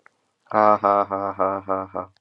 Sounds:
Laughter